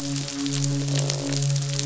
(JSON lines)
{"label": "biophony, midshipman", "recorder": "SoundTrap 500"}
{"label": "biophony, croak", "recorder": "SoundTrap 500"}